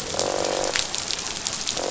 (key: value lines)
label: biophony, croak
recorder: SoundTrap 500